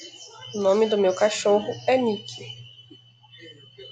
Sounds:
Sniff